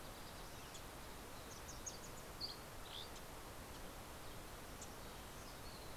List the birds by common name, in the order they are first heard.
Wilson's Warbler, Dusky Flycatcher